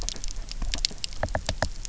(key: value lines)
label: biophony, knock
recorder: SoundTrap 300